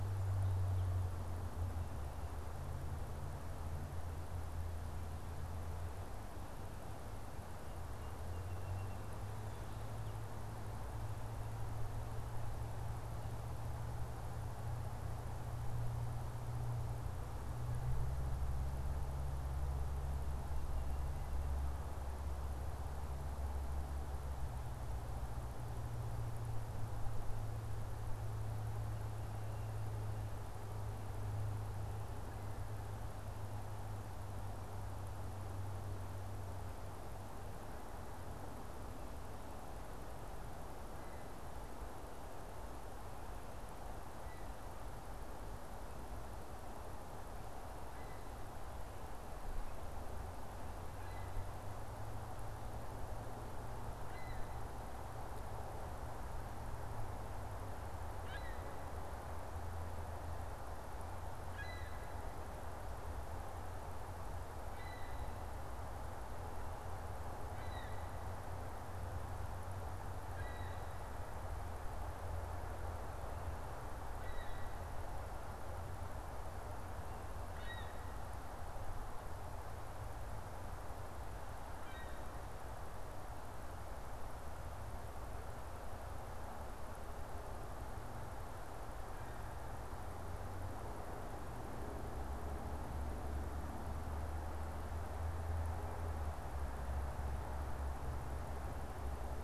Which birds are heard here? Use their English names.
Song Sparrow, Ring-billed Gull